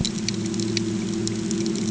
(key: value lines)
label: anthrophony, boat engine
recorder: HydroMoth